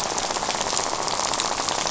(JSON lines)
{"label": "biophony, rattle", "recorder": "SoundTrap 500"}